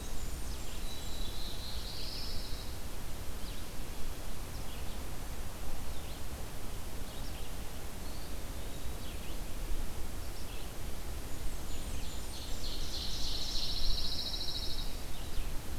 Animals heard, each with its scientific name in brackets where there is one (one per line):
Pine Warbler (Setophaga pinus)
Red-eyed Vireo (Vireo olivaceus)
Black-throated Blue Warbler (Setophaga caerulescens)
Ovenbird (Seiurus aurocapilla)
Blackburnian Warbler (Setophaga fusca)